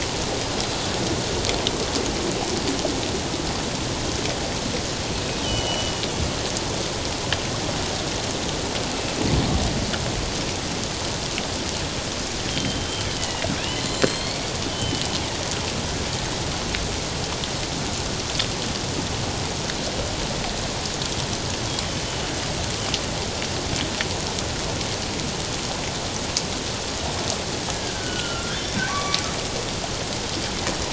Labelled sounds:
5.4	6.0	killer whale, northern resident, G clan, 2.8 to 6.0 kHz
12.5	14.4	killer whale, northern resident, G clan, 1.8 to 7.9 kHz
14.7	15.2	killer whale, northern resident, G clan, 3.0 to 3.1 kHz
27.7	29.2	killer whale, northern resident, G clan, 1.0 to 2.3 kHz

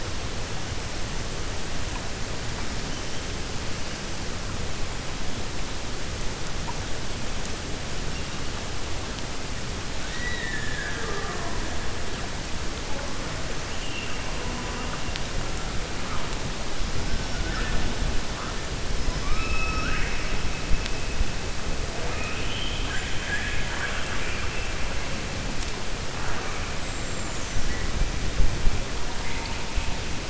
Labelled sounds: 10.0	11.6	killer whale, 0.39 to 4.1 kHz
19.1	20.3	killer whale, 1.1 to 2.9 kHz

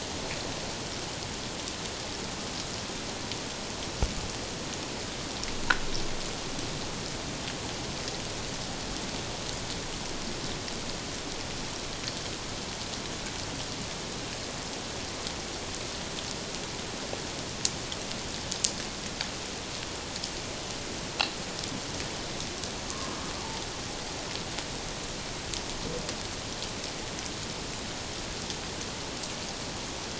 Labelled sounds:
22.9	23.1	humpback whale, 1.0 to 1.2 kHz

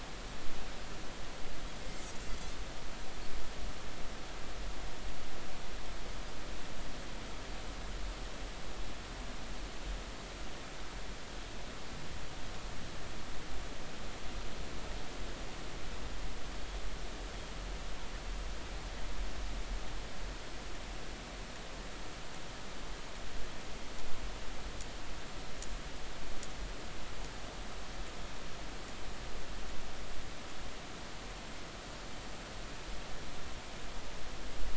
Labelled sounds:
1.8	2.1	Pacific white-sided dolphin, 2.0 to 2.2 kHz

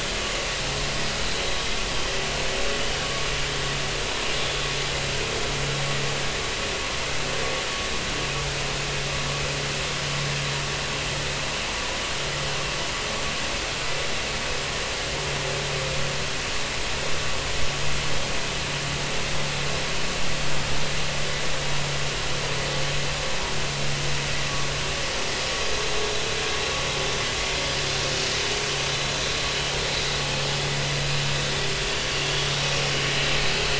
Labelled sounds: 33.5	33.7	vessel noise, 4.3 to 4.4 kHz

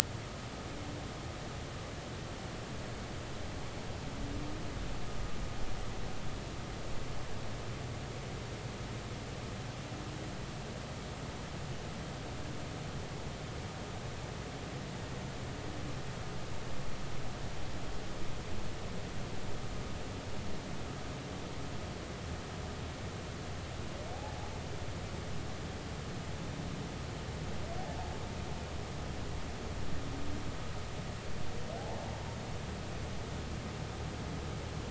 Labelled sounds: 24.1	24.4	humpback whale, 0.80 to 0.90 kHz

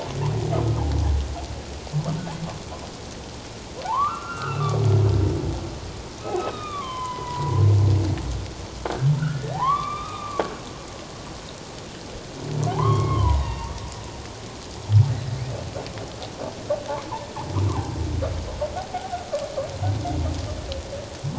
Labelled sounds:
0.5	0.8	humpback whale, 1.2 to 1.3 kHz
3.8	4.8	humpback whale, 0.78 to 2.9 kHz
6.2	7.6	humpback whale, 0.88 to 3.9 kHz
8.9	10.4	humpback whale, 0.78 to 3.8 kHz
12.7	13.7	humpback whale, 0.78 to 4.8 kHz
15.4	15.6	humpback whale, 2.1 to 2.8 kHz
18.8	19.2	humpback whale, 0.78 to 0.84 kHz

